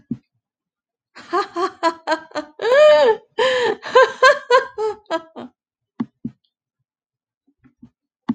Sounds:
Laughter